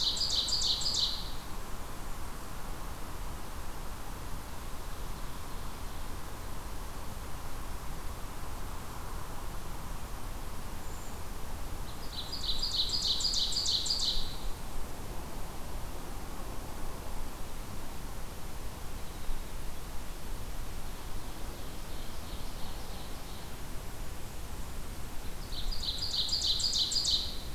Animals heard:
Blackburnian Warbler (Setophaga fusca)
Brown Creeper (Certhia americana)
Ovenbird (Seiurus aurocapilla)

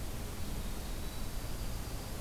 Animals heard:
Winter Wren (Troglodytes hiemalis)

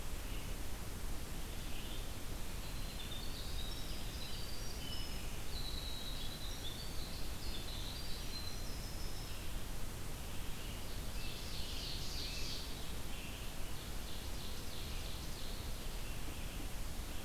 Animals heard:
Red-eyed Vireo (Vireo olivaceus)
Ovenbird (Seiurus aurocapilla)
Winter Wren (Troglodytes hiemalis)

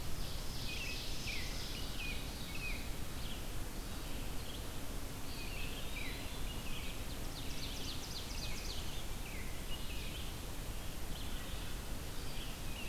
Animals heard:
Red-eyed Vireo (Vireo olivaceus)
Ovenbird (Seiurus aurocapilla)
Eastern Wood-Pewee (Contopus virens)
American Robin (Turdus migratorius)

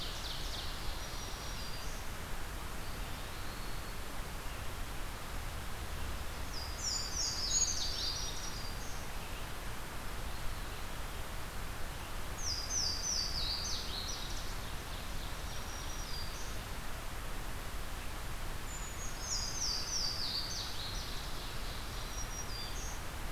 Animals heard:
Louisiana Waterthrush (Parkesia motacilla)
Brown Creeper (Certhia americana)
Eastern Wood-Pewee (Contopus virens)
Black-throated Green Warbler (Setophaga virens)
Ovenbird (Seiurus aurocapilla)

